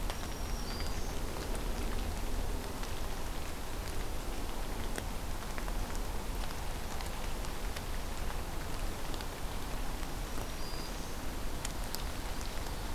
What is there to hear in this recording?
Black-throated Green Warbler